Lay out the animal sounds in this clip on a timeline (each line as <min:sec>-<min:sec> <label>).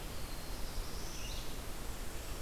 0:00.0-0:01.6 Black-throated Blue Warbler (Setophaga caerulescens)
0:00.0-0:02.4 Red-eyed Vireo (Vireo olivaceus)
0:01.4-0:02.4 Black-and-white Warbler (Mniotilta varia)